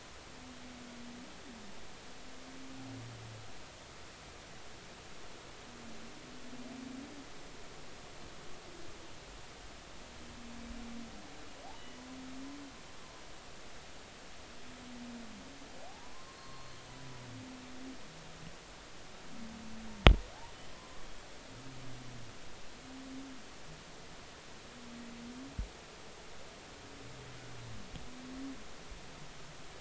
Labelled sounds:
11.7	12.0	humpback whale, 2.9 to 3.0 kHz
15.9	16.8	humpback whale, 0.80 to 4.4 kHz
20.7	21.0	humpback whale, 0.96 to 1.1 kHz

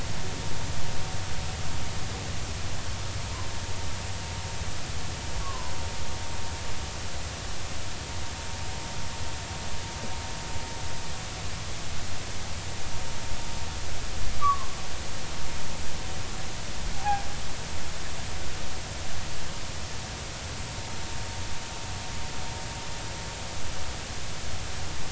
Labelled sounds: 5.4	5.7	humpback whale, 0.96 to 1.2 kHz
14.4	14.7	humpback whale, 0.99 to 1.3 kHz
16.9	17.2	humpback whale, 0.80 to 0.90 kHz

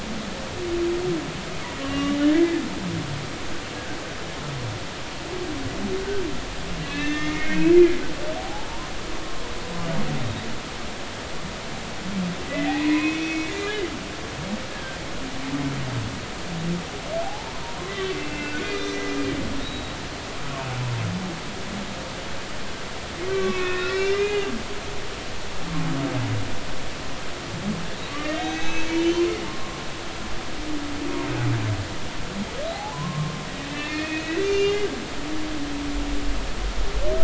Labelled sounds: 1.8	2.2	humpback whale, 1.1 to 2.9 kHz
6.8	7.7	humpback whale, 1.7 to 3.6 kHz
8.4	8.7	humpback whale, 0.80 to 0.93 kHz
12.7	13.8	humpback whale, 0.96 to 3.7 kHz
14.7	15.0	humpback whale, 1.5 to 1.7 kHz
17.2	19.2	humpback whale, 0.80 to 4.1 kHz
19.6	19.9	humpback whale, 3.6 to 3.9 kHz
23.3	24.7	humpback whale, 1.1 to 5.6 kHz
28.1	29.7	humpback whale, 0.80 to 6.3 kHz
32.7	34.9	humpback whale, 0.80 to 3.6 kHz

